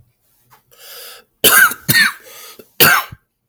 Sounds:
Cough